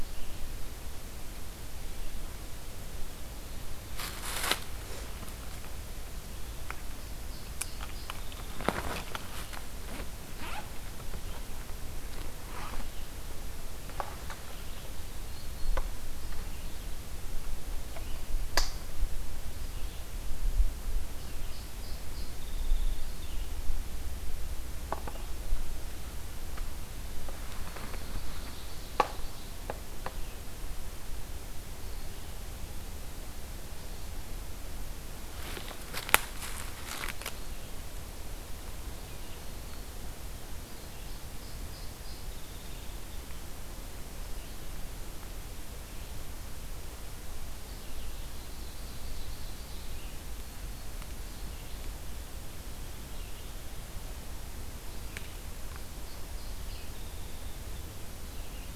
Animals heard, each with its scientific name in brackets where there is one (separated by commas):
Song Sparrow (Melospiza melodia), Ovenbird (Seiurus aurocapilla), Red-eyed Vireo (Vireo olivaceus)